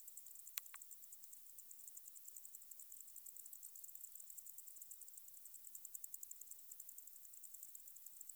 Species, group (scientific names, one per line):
Decticus albifrons
Orthoptera